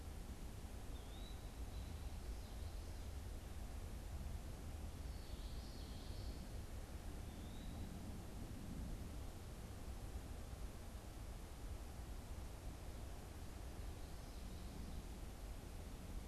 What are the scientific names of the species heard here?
Contopus virens, Turdus migratorius, Geothlypis trichas